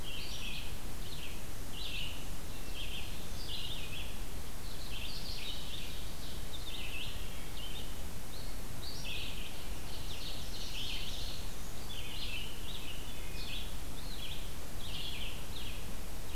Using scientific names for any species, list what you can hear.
Vireo olivaceus, Seiurus aurocapilla, Hylocichla mustelina